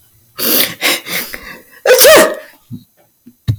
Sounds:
Sneeze